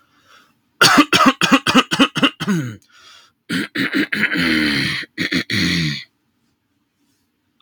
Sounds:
Throat clearing